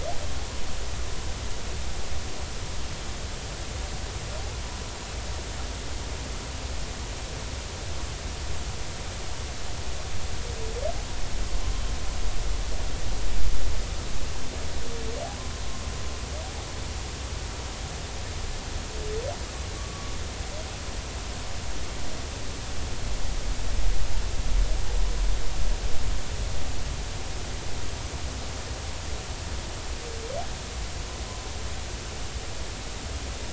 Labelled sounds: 19.8	20.1	humpback whale, 1.1 to 1.2 kHz

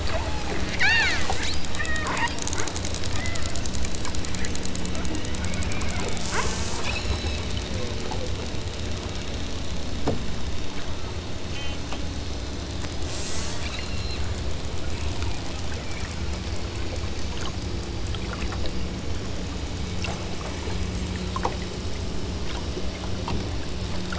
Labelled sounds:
0.8	1.3	killer whale, southern Alaska resident, 0.56 to 5.1 kHz
1.6	2.2	killer whale, southern Alaska resident, 0.77 to 4.3 kHz
3.1	3.5	killer whale, southern Alaska resident, 1.4 to 2.5 kHz
6.1	7.5	killer whale, southern Alaska resident, 1.8 to 8.0 kHz
11.4	11.8	killer whale, southern Alaska resident, 1.2 to 3.3 kHz
13.0	14.3	killer whale, southern Alaska resident, 0.90 to 8.0 kHz

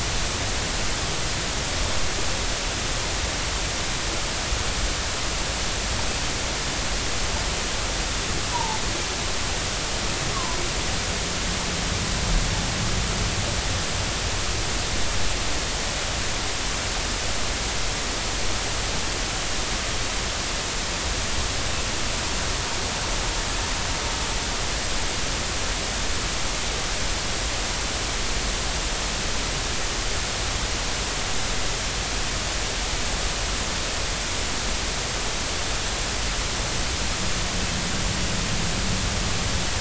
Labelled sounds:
8.5	8.8	humpback whale, 0.80 to 1.0 kHz
10.3	10.6	humpback whale, 0.86 to 1.2 kHz

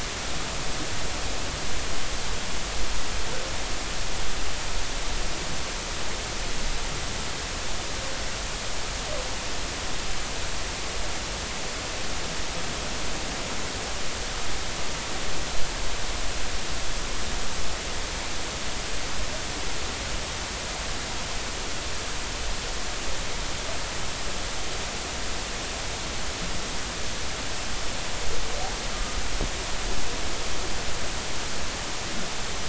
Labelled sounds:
28.9	29.2	humpback whale, 1.2 to 1.3 kHz

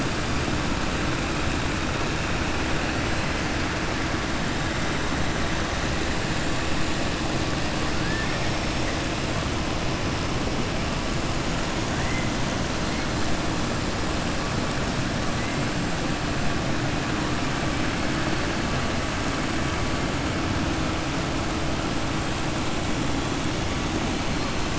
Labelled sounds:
8.0	8.5	killer whale, southern resident, 1.5 to 2.6 kHz

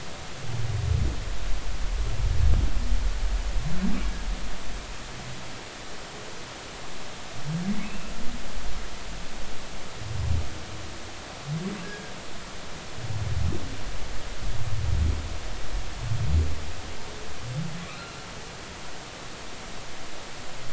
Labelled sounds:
7.8	8.1	humpback whale, 2.4 to 2.8 kHz
17.9	18.2	humpback whale, 3.9 to 4.2 kHz

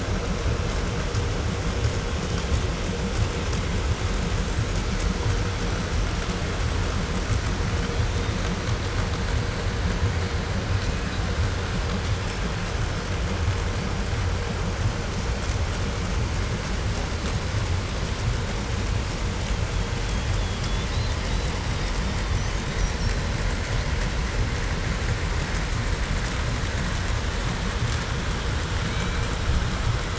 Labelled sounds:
2.1	2.6	killer whale, 2.7 to 3.6 kHz
7.5	8.5	killer whale, 2.6 to 4.1 kHz
10.7	11.2	killer whale, 2.1 to 2.8 kHz
19.3	24.1	killer whale, 2.4 to 6.9 kHz
28.8	29.4	killer whale, Bigg's (transient), call T01, 1.6 to 4.2 kHz

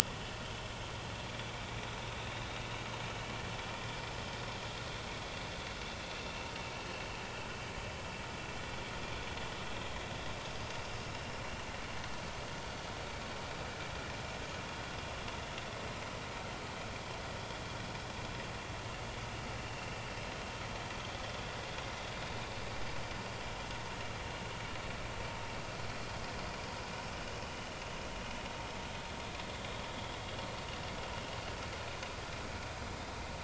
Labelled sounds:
11.1	11.4	vessel noise, 2.8 to 2.9 kHz
19.6	19.9	vessel noise, 2.6 to 2.9 kHz

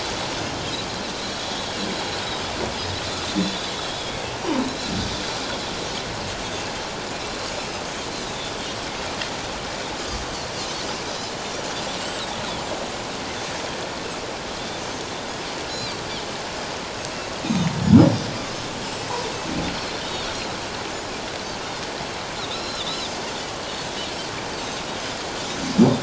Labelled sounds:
3.3	4.3	Pacific white-sided dolphin, 1.9 to 3.8 kHz
11.1	11.3	Pacific white-sided dolphin, 3.8 to 4.1 kHz
15.7	16.0	Pacific white-sided dolphin, 3.7 to 4.2 kHz
20.0	20.3	Pacific white-sided dolphin, 3.5 to 3.8 kHz
22.4	23.1	Pacific white-sided dolphin, 3.4 to 5.5 kHz

